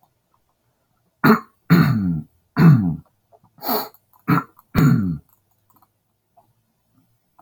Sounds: Throat clearing